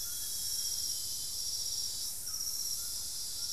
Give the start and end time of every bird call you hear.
0.0s-0.7s: Plain-winged Antshrike (Thamnophilus schistaceus)
0.0s-1.1s: Thrush-like Wren (Campylorhynchus turdinus)
0.0s-1.6s: Amazonian Grosbeak (Cyanoloxia rothschildii)
0.0s-3.5s: White-throated Toucan (Ramphastos tucanus)

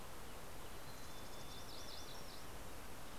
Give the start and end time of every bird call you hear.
0.0s-2.5s: Mountain Chickadee (Poecile gambeli)
1.2s-3.0s: MacGillivray's Warbler (Geothlypis tolmiei)

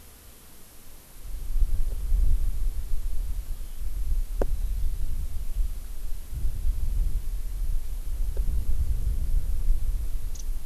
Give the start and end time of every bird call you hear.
10.4s-10.5s: Warbling White-eye (Zosterops japonicus)

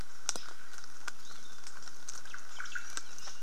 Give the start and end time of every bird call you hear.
2.1s-3.0s: Omao (Myadestes obscurus)

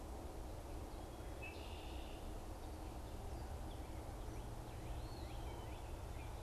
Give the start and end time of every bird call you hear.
1.1s-2.3s: Red-winged Blackbird (Agelaius phoeniceus)
4.8s-5.9s: Eastern Wood-Pewee (Contopus virens)

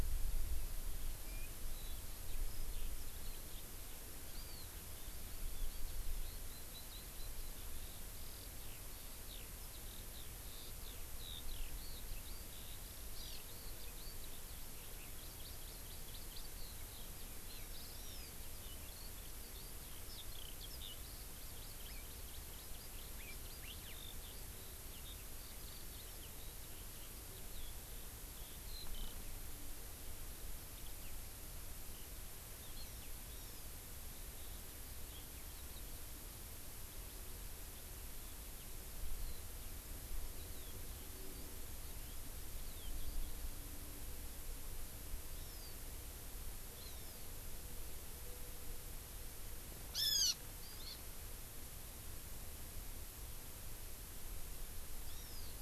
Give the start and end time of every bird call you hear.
0.0s-29.2s: Eurasian Skylark (Alauda arvensis)
4.3s-4.8s: Hawaii Amakihi (Chlorodrepanis virens)
13.1s-13.4s: Hawaii Amakihi (Chlorodrepanis virens)
15.2s-16.5s: Hawaii Amakihi (Chlorodrepanis virens)
20.9s-23.4s: Hawaii Amakihi (Chlorodrepanis virens)
23.6s-23.9s: Hawaii Elepaio (Chasiempis sandwichensis)
32.7s-33.8s: Hawaii Amakihi (Chlorodrepanis virens)
39.1s-43.2s: Eurasian Skylark (Alauda arvensis)
45.3s-45.8s: Hawaii Amakihi (Chlorodrepanis virens)
46.7s-47.3s: Hawaii Amakihi (Chlorodrepanis virens)
49.9s-50.3s: Hawaiian Hawk (Buteo solitarius)
50.8s-51.0s: Hawaii Amakihi (Chlorodrepanis virens)
55.0s-55.6s: Hawaii Amakihi (Chlorodrepanis virens)

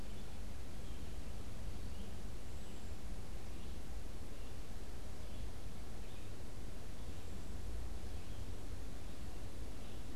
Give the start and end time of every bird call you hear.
0.0s-10.2s: Red-eyed Vireo (Vireo olivaceus)

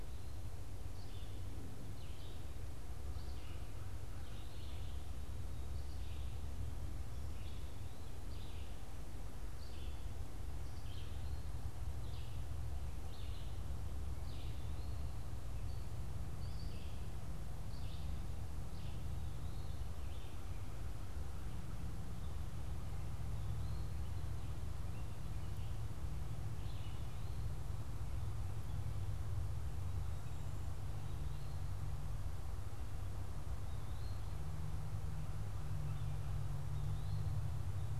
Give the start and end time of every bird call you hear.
0.0s-20.8s: Red-eyed Vireo (Vireo olivaceus)
22.8s-38.0s: Eastern Wood-Pewee (Contopus virens)

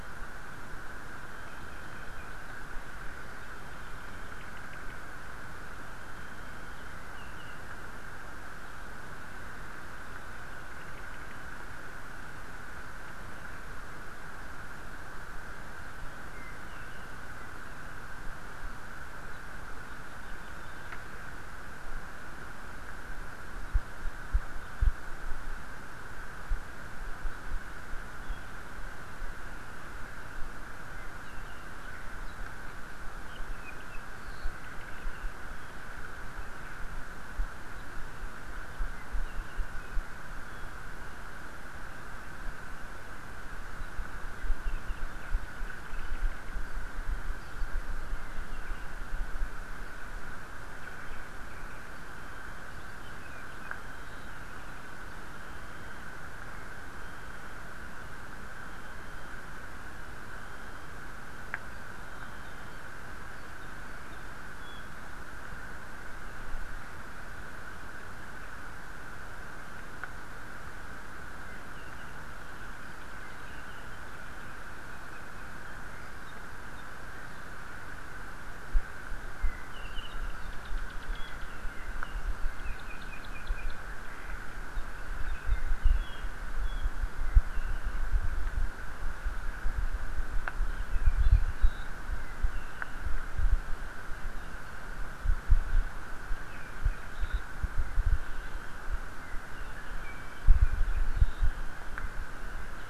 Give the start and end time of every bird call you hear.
1.2s-2.3s: Apapane (Himatione sanguinea)
3.4s-4.9s: Apapane (Himatione sanguinea)
6.4s-7.5s: Apapane (Himatione sanguinea)
8.6s-8.9s: Apapane (Himatione sanguinea)
10.7s-11.3s: Apapane (Himatione sanguinea)
16.3s-17.1s: Apapane (Himatione sanguinea)
17.4s-17.9s: Apapane (Himatione sanguinea)
19.3s-20.7s: Apapane (Himatione sanguinea)
23.6s-24.9s: Apapane (Himatione sanguinea)
27.3s-27.4s: Apapane (Himatione sanguinea)
28.2s-28.4s: Apapane (Himatione sanguinea)
30.9s-32.7s: Apapane (Himatione sanguinea)
33.2s-35.8s: Apapane (Himatione sanguinea)
38.9s-40.7s: Apapane (Himatione sanguinea)
43.8s-43.9s: Apapane (Himatione sanguinea)
44.3s-46.5s: Apapane (Himatione sanguinea)
47.4s-47.6s: Apapane (Himatione sanguinea)
48.1s-48.8s: Apapane (Himatione sanguinea)
50.8s-51.2s: Omao (Myadestes obscurus)
51.5s-51.8s: Omao (Myadestes obscurus)
52.8s-54.4s: Apapane (Himatione sanguinea)
56.5s-57.5s: Apapane (Himatione sanguinea)
61.7s-62.8s: Apapane (Himatione sanguinea)
63.3s-64.8s: Apapane (Himatione sanguinea)
71.4s-72.2s: Apapane (Himatione sanguinea)
72.8s-74.0s: Apapane (Himatione sanguinea)
74.9s-75.7s: Apapane (Himatione sanguinea)
76.2s-77.5s: Apapane (Himatione sanguinea)
79.4s-84.4s: Apapane (Himatione sanguinea)
84.7s-86.2s: Apapane (Himatione sanguinea)
86.6s-86.8s: Apapane (Himatione sanguinea)
87.1s-88.0s: Apapane (Himatione sanguinea)
90.7s-91.8s: Apapane (Himatione sanguinea)
92.2s-93.0s: Apapane (Himatione sanguinea)
94.3s-94.7s: Apapane (Himatione sanguinea)
96.5s-97.4s: Apapane (Himatione sanguinea)
99.2s-100.4s: Iiwi (Drepanis coccinea)
100.6s-101.4s: Apapane (Himatione sanguinea)

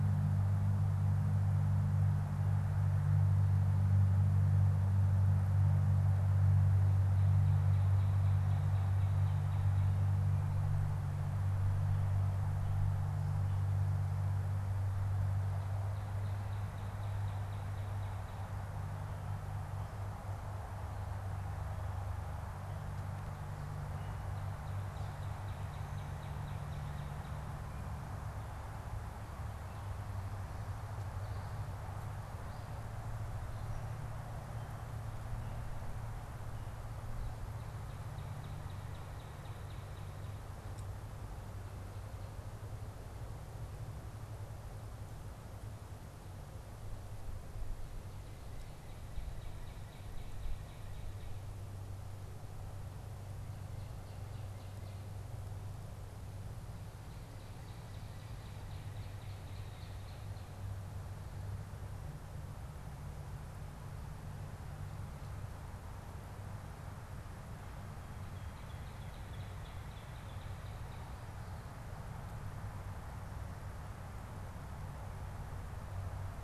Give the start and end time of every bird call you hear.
6.5s-10.1s: Northern Cardinal (Cardinalis cardinalis)
14.8s-18.6s: Northern Cardinal (Cardinalis cardinalis)
24.1s-27.6s: Northern Cardinal (Cardinalis cardinalis)
29.5s-34.3s: Gray Catbird (Dumetella carolinensis)
37.6s-40.6s: Northern Cardinal (Cardinalis cardinalis)
48.0s-51.5s: Northern Cardinal (Cardinalis cardinalis)
57.0s-60.7s: Northern Cardinal (Cardinalis cardinalis)
68.2s-71.1s: Northern Cardinal (Cardinalis cardinalis)

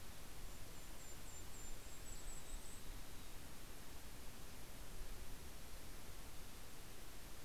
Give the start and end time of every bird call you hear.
0.0s-3.1s: Golden-crowned Kinglet (Regulus satrapa)
1.6s-3.7s: Mountain Chickadee (Poecile gambeli)

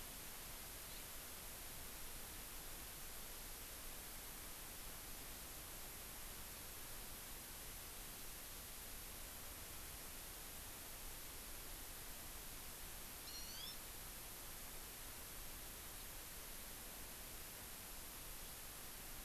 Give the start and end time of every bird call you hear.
0.8s-1.0s: Hawaii Amakihi (Chlorodrepanis virens)
13.2s-13.8s: Hawaii Amakihi (Chlorodrepanis virens)

